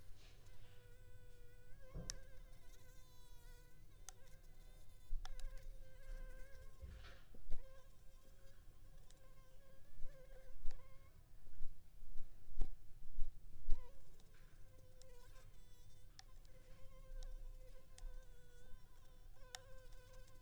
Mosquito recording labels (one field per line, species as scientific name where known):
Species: Anopheles arabiensis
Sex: female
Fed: unfed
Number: one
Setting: cup